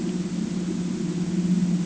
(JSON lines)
{"label": "ambient", "recorder": "HydroMoth"}